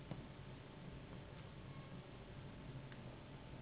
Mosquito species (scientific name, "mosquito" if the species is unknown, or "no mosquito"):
Anopheles gambiae s.s.